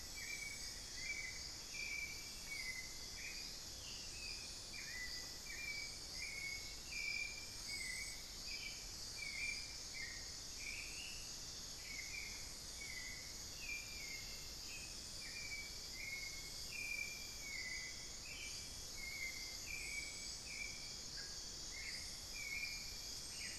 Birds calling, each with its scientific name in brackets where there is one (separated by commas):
Ringed Antpipit (Corythopis torquatus), Hauxwell's Thrush (Turdus hauxwelli), unidentified bird